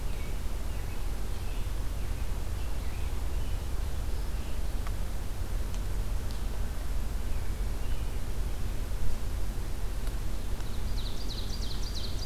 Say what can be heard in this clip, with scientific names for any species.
Turdus migratorius, Seiurus aurocapilla